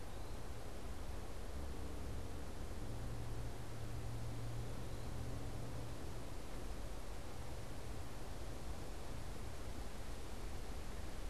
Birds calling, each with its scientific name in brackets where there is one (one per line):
Eastern Wood-Pewee (Contopus virens)